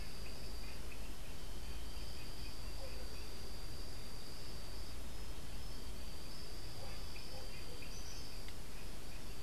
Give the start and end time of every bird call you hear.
[7.76, 8.56] Tropical Kingbird (Tyrannus melancholicus)

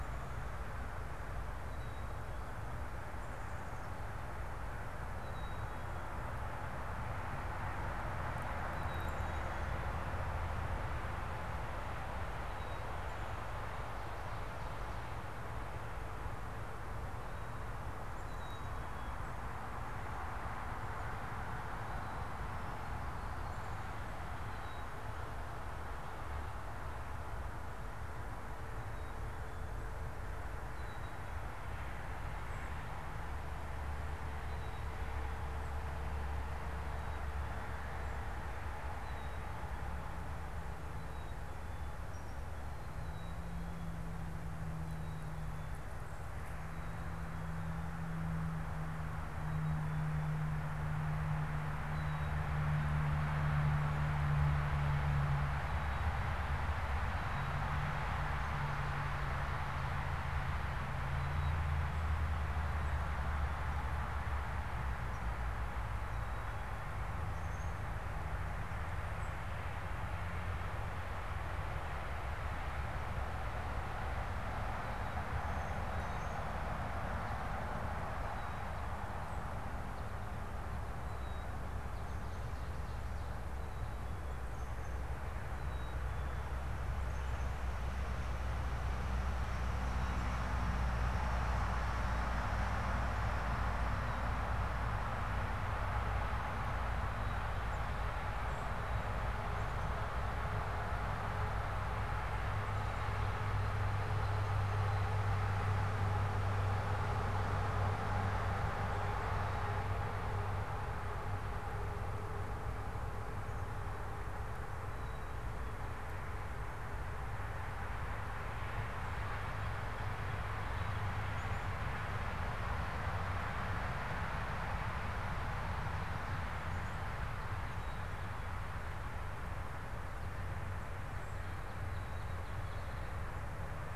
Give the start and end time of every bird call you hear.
[0.00, 89.20] Black-capped Chickadee (Poecile atricapillus)
[79.70, 81.20] American Goldfinch (Spinus tristis)
[89.50, 115.30] Black-capped Chickadee (Poecile atricapillus)
[118.90, 121.90] Northern Cardinal (Cardinalis cardinalis)
[121.20, 121.50] Black-capped Chickadee (Poecile atricapillus)
[131.50, 133.30] Northern Cardinal (Cardinalis cardinalis)

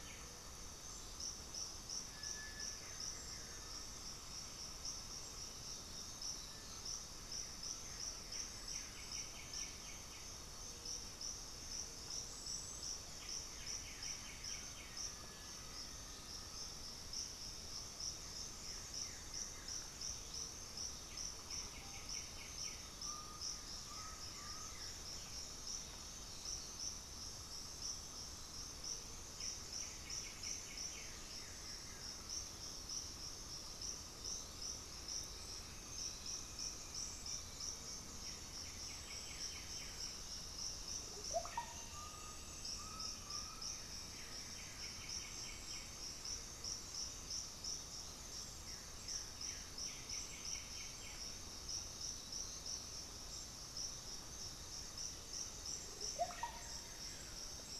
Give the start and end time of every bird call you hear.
[0.00, 2.88] Cinereous Tinamou (Crypturellus cinereus)
[2.58, 25.18] Blue-gray Saltator (Saltator coerulescens)
[5.58, 6.98] unidentified bird
[7.58, 15.18] White-winged Becard (Pachyramphus polychopterus)
[14.88, 17.08] Black-faced Antthrush (Formicarius analis)
[14.98, 16.78] Undulated Tinamou (Crypturellus undulatus)
[20.78, 22.98] White-winged Becard (Pachyramphus polychopterus)
[22.98, 24.88] Undulated Tinamou (Crypturellus undulatus)
[25.08, 25.48] unidentified bird
[25.98, 26.98] unidentified bird
[29.18, 31.48] White-winged Becard (Pachyramphus polychopterus)
[31.28, 32.28] Blue-gray Saltator (Saltator coerulescens)
[34.28, 38.08] unidentified bird
[35.08, 45.98] Elegant Woodcreeper (Xiphorhynchus elegans)
[37.78, 49.98] Blue-gray Saltator (Saltator coerulescens)
[38.08, 51.58] White-winged Becard (Pachyramphus polychopterus)
[40.88, 42.18] Russet-backed Oropendola (Psarocolius angustifrons)
[41.88, 43.78] Undulated Tinamou (Crypturellus undulatus)
[51.58, 52.78] unidentified bird
[54.58, 55.58] Blue-gray Saltator (Saltator coerulescens)
[55.58, 56.78] Russet-backed Oropendola (Psarocolius angustifrons)
[56.48, 57.78] Blue-gray Saltator (Saltator coerulescens)

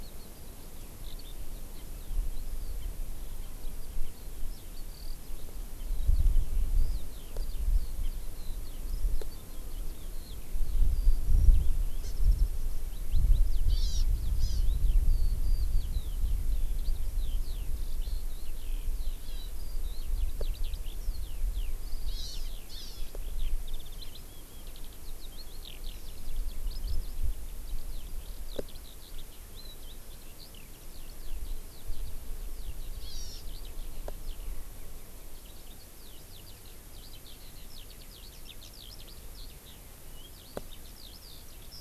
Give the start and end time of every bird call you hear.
[0.00, 41.80] Eurasian Skylark (Alauda arvensis)
[12.00, 12.20] Hawaii Amakihi (Chlorodrepanis virens)
[13.70, 14.00] Hawaii Amakihi (Chlorodrepanis virens)
[14.40, 14.60] Hawaii Amakihi (Chlorodrepanis virens)
[19.20, 19.50] Hawaii Amakihi (Chlorodrepanis virens)
[22.10, 23.10] Hawaii Amakihi (Chlorodrepanis virens)
[33.00, 33.40] Hawaii Amakihi (Chlorodrepanis virens)

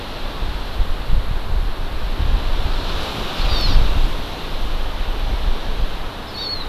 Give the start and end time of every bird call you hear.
[3.33, 3.83] Hawaii Amakihi (Chlorodrepanis virens)
[6.23, 6.63] Hawaii Amakihi (Chlorodrepanis virens)

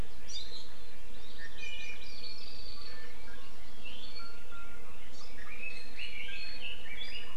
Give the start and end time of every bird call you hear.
[1.06, 3.76] Iiwi (Drepanis coccinea)
[5.36, 7.36] Red-billed Leiothrix (Leiothrix lutea)

